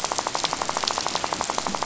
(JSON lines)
{"label": "biophony, rattle", "recorder": "SoundTrap 500"}